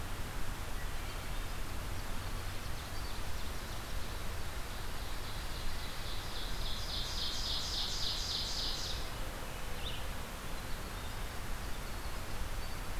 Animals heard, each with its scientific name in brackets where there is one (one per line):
Winter Wren (Troglodytes hiemalis)
Red-eyed Vireo (Vireo olivaceus)
Ovenbird (Seiurus aurocapilla)